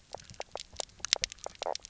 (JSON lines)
{"label": "biophony, knock croak", "recorder": "SoundTrap 300"}